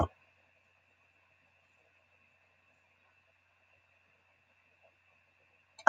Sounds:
Cough